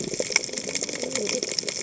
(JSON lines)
{"label": "biophony, cascading saw", "recorder": "HydroMoth"}